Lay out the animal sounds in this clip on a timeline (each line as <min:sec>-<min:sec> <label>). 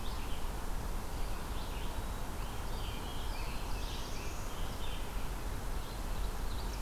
0:00.0-0:06.8 Red-eyed Vireo (Vireo olivaceus)
0:02.3-0:05.2 American Robin (Turdus migratorius)
0:02.6-0:04.7 Black-throated Blue Warbler (Setophaga caerulescens)
0:06.1-0:06.8 Ovenbird (Seiurus aurocapilla)